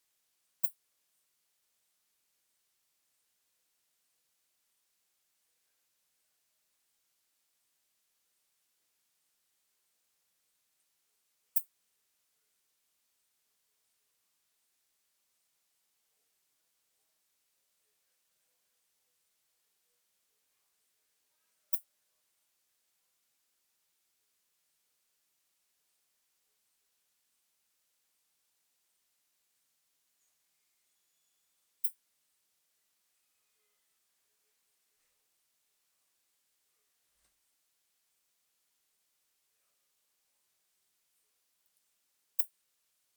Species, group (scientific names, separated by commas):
Poecilimon ornatus, Orthoptera